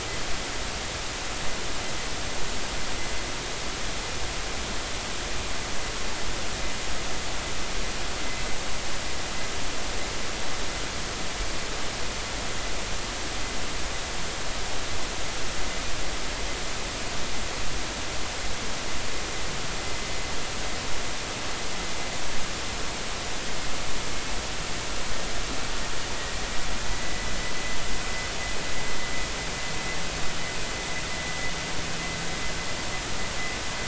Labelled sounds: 27.0	27.3	vessel noise, 1.95 to 2.05 kHz

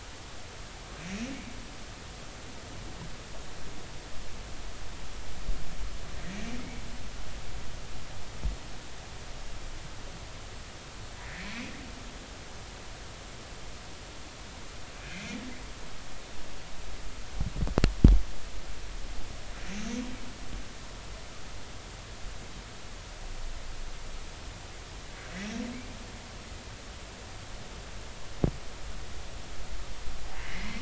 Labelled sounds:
11.3	11.7	humpback whale, 1.7 to 2.6 kHz
15.0	15.4	humpback whale, 2.2 to 2.6 kHz
19.7	20.0	humpback whale, 6.2 to 6.4 kHz
30.4	30.8	humpback whale, 1.8 to 2.3 kHz

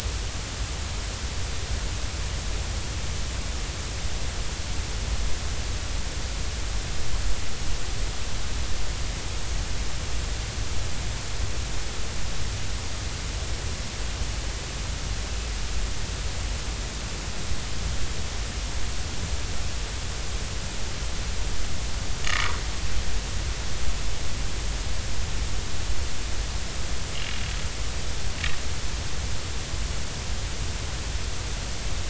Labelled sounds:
22.3	22.6	vessel noise, 0.93 to 1.3 kHz

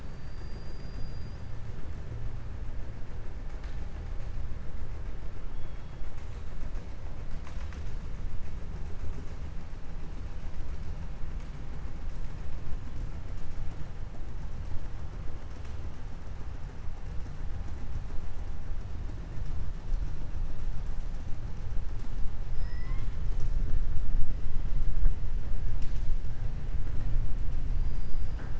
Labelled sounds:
0.0	1.4	killer whale, southern resident, 4.0 to 5.4 kHz
22.5	23.1	killer whale, southern resident, 1.0 to 5.2 kHz

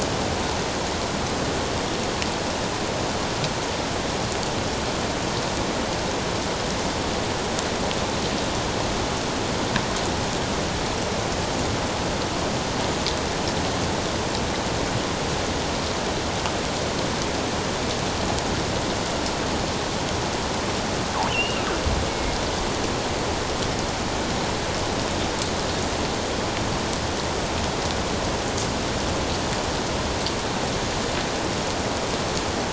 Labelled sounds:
21.3	22.4	killer whale, offshore, 2.1 to 3.1 kHz

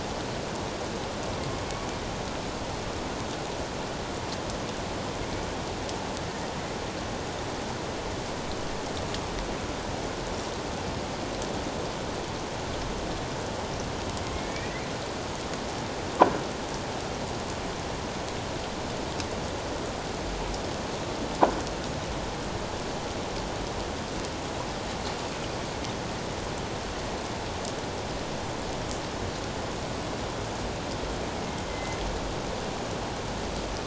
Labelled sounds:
14.3	14.9	killer whale, northern resident, A clan, AA subclan, A04 pod, 1.8 to 2.5 kHz
31.5	32.0	killer whale, northern resident, A clan, AA subclan, A04 pod, 2.0 to 3.2 kHz

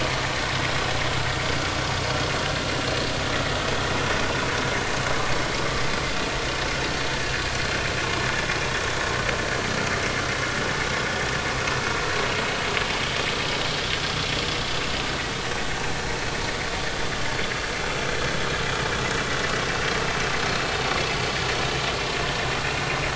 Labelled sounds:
20.5	20.7	vessel noise, 4.2 to 4.4 kHz

